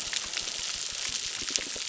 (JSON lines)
{"label": "biophony, crackle", "recorder": "SoundTrap 600"}